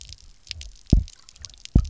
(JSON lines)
{"label": "biophony, double pulse", "recorder": "SoundTrap 300"}